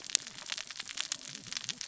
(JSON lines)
{"label": "biophony, cascading saw", "recorder": "SoundTrap 600 or HydroMoth"}